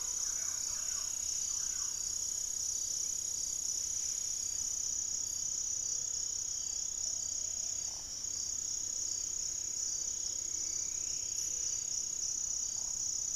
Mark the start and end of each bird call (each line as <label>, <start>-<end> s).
Gray-fronted Dove (Leptotila rufaxilla), 0.0-0.5 s
Striped Woodcreeper (Xiphorhynchus obsoletus), 0.0-2.2 s
Thrush-like Wren (Campylorhynchus turdinus), 0.0-2.3 s
Buff-breasted Wren (Cantorchilus leucotis), 0.0-13.4 s
Plumbeous Pigeon (Patagioenas plumbea), 0.3-1.3 s
unidentified bird, 2.9-3.2 s
Gray-fronted Dove (Leptotila rufaxilla), 5.6-6.3 s
unidentified bird, 6.3-7.2 s
Plumbeous Pigeon (Patagioenas plumbea), 6.9-8.1 s
Striped Woodcreeper (Xiphorhynchus obsoletus), 9.6-12.6 s
Gray-fronted Dove (Leptotila rufaxilla), 11.2-11.8 s